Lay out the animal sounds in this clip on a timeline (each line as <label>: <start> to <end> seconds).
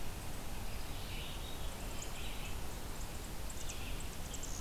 Red-eyed Vireo (Vireo olivaceus): 0.6 to 4.6 seconds
Veery (Catharus fuscescens): 0.9 to 2.4 seconds
Chimney Swift (Chaetura pelagica): 1.6 to 4.6 seconds